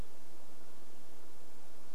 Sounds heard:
forest ambience